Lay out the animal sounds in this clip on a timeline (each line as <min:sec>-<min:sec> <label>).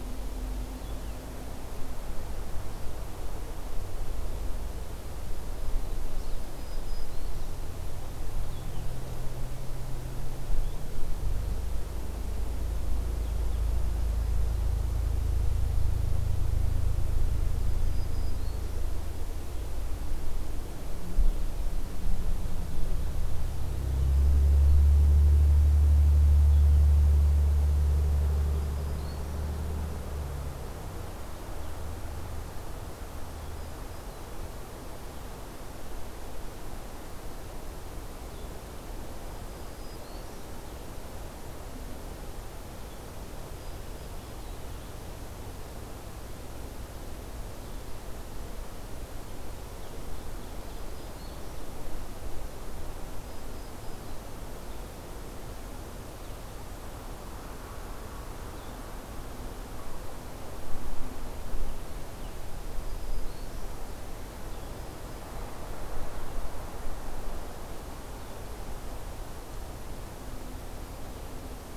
0:00.0-0:10.9 Blue-headed Vireo (Vireo solitarius)
0:05.0-0:06.0 Black-throated Green Warbler (Setophaga virens)
0:06.5-0:07.6 Black-throated Green Warbler (Setophaga virens)
0:17.6-0:18.9 Black-throated Green Warbler (Setophaga virens)
0:28.3-0:29.4 Black-throated Green Warbler (Setophaga virens)
0:33.3-0:34.3 Black-throated Green Warbler (Setophaga virens)
0:39.1-0:40.5 Black-throated Green Warbler (Setophaga virens)
0:43.5-0:44.7 Black-throated Green Warbler (Setophaga virens)
0:50.0-0:51.4 Ovenbird (Seiurus aurocapilla)
0:50.5-0:51.5 Black-throated Green Warbler (Setophaga virens)
0:53.2-0:54.2 Black-throated Green Warbler (Setophaga virens)
0:54.5-1:11.8 Blue-headed Vireo (Vireo solitarius)
1:02.6-1:03.8 Black-throated Green Warbler (Setophaga virens)